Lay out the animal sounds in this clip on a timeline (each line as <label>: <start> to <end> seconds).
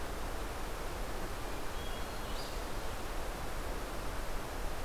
Red-eyed Vireo (Vireo olivaceus): 0.0 to 4.8 seconds
Hermit Thrush (Catharus guttatus): 1.2 to 2.7 seconds